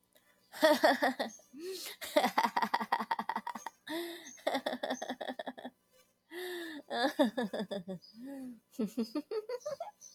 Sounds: Laughter